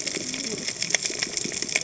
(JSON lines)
{"label": "biophony, cascading saw", "recorder": "HydroMoth"}